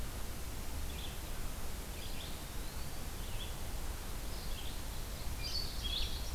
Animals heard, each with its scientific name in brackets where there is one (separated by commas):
Red-eyed Vireo (Vireo olivaceus), Blue-headed Vireo (Vireo solitarius), Eastern Wood-Pewee (Contopus virens), Ovenbird (Seiurus aurocapilla)